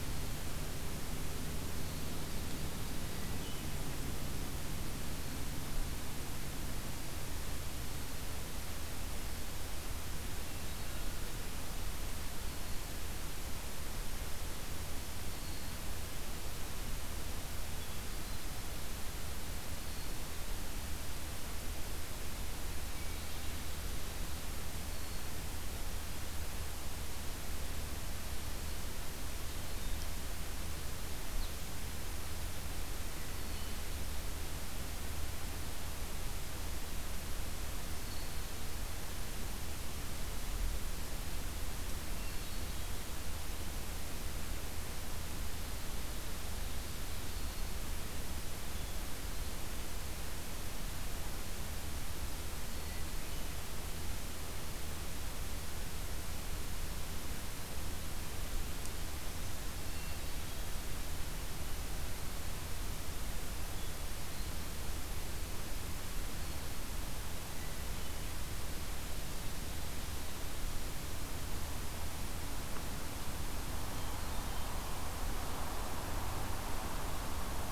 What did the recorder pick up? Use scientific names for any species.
Catharus guttatus, Setophaga virens